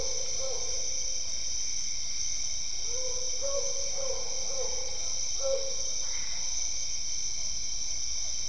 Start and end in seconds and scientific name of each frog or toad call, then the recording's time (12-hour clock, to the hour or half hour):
6.0	6.6	Boana albopunctata
7.2	8.4	Physalaemus cuvieri
7:30pm